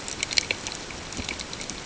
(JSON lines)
{"label": "ambient", "recorder": "HydroMoth"}